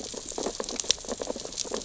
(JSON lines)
{"label": "biophony, sea urchins (Echinidae)", "recorder": "SoundTrap 600 or HydroMoth"}